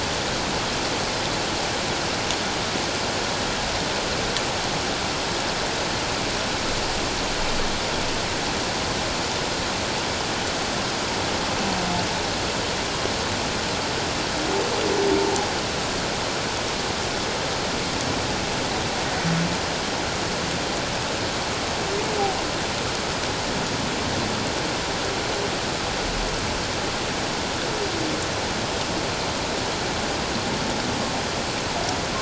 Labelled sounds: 15.2	15.5	humpback whale, 0.78 to 0.94 kHz

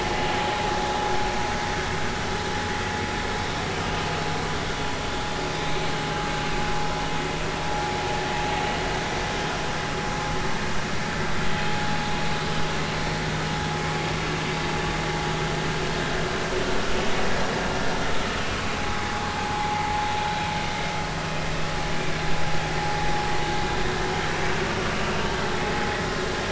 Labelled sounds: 18.8	20.0	vessel noise, 0.80 to 0.96 kHz

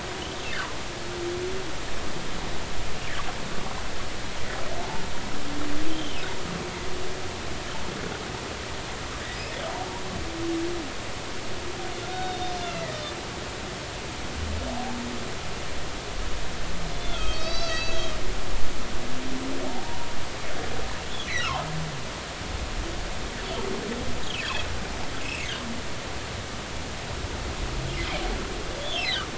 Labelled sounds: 5.9	6.2	humpback whale, 2.8 to 3.3 kHz
12.1	13.0	humpback whale, 1.8 to 5.2 kHz
16.9	18.1	humpback whale, 1.2 to 6.7 kHz
21.4	21.6	humpback whale, 0.80 to 1.5 kHz
25.2	25.5	humpback whale, 2.3 to 2.9 kHz
28.8	29.0	humpback whale, 3.0 to 3.6 kHz

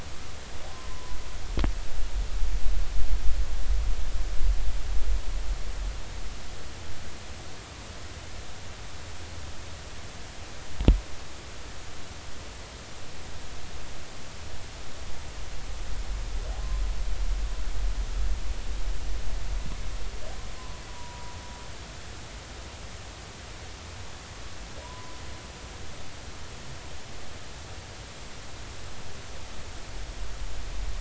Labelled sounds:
0.7	1.2	humpback whale, 0.96 to 1.1 kHz
20.9	21.3	humpback whale, 0.93 to 1.0 kHz
24.8	25.2	humpback whale, 0.90 to 1.1 kHz

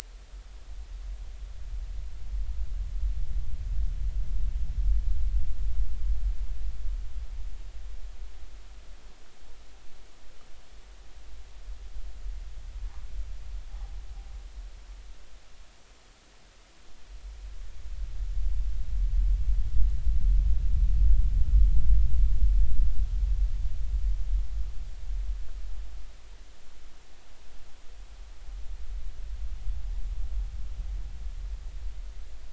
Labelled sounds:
13.7	13.9	noise likely from the mooring, 0.80 to 1.2 kHz

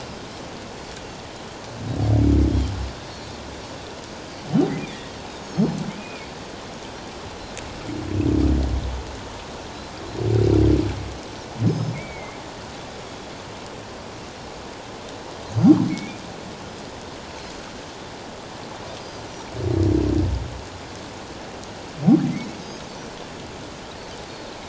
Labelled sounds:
4.9	6.2	humpback whale, 2.3 to 3.7 kHz
5.3	5.8	Pacific white-sided dolphin, 5.1 to 6.8 kHz
11.6	12.0	Pacific white-sided dolphin, 5.0 to 6.5 kHz
11.9	12.4	humpback whale, 2.0 to 2.5 kHz
15.9	16.2	humpback whale, 2.1 to 2.5 kHz
22.6	22.9	Pacific white-sided dolphin, 6.3 to 6.5 kHz

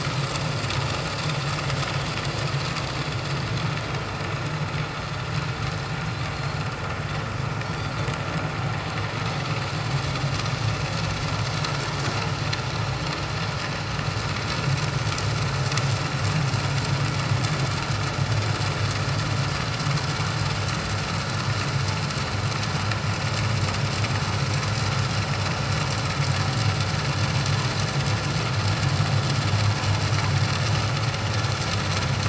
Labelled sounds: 6.3	6.6	Pacific white-sided dolphin, 4.1 to 4.4 kHz

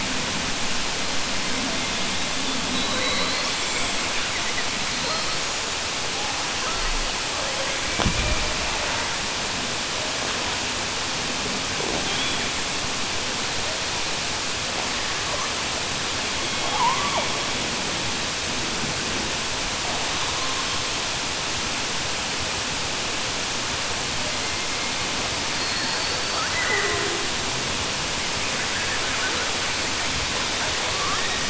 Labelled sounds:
25.5	26.4	killer whale, southern resident, 4.2 to 4.8 kHz

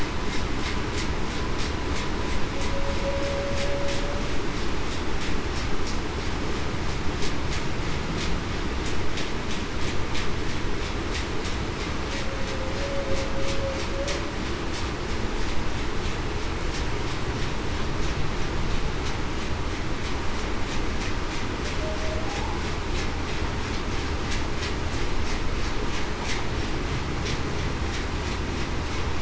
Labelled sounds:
3.0	3.6	humpback whale, 0.54 to 0.61 kHz

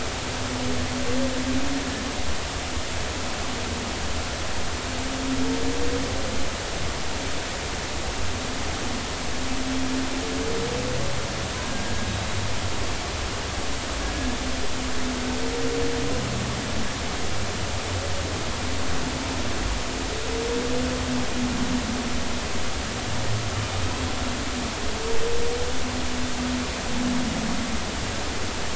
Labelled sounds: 11.6	11.8	killer whale, Bigg's (transient), 1.5 to 1.7 kHz

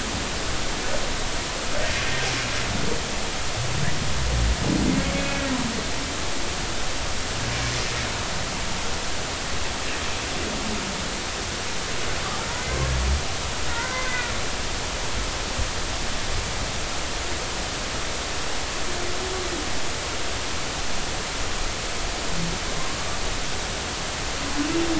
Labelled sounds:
5.2	5.4	humpback whale, 2.5 to 2.6 kHz
13.7	14.3	humpback whale, 1.3 to 2.1 kHz

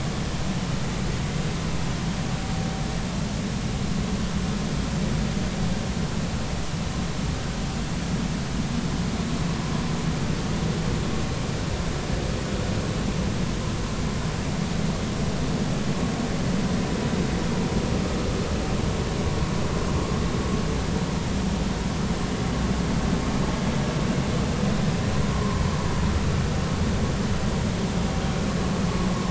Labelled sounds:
25.3	25.6	vessel noise, 0.96 to 1.1 kHz

